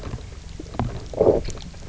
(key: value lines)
label: biophony, low growl
recorder: SoundTrap 300